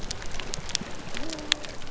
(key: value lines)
label: biophony
recorder: SoundTrap 300